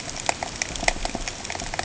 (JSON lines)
{"label": "ambient", "recorder": "HydroMoth"}